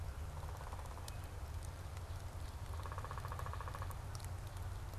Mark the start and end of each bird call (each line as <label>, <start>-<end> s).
Downy Woodpecker (Dryobates pubescens), 0.2-1.3 s
Downy Woodpecker (Dryobates pubescens), 2.5-4.4 s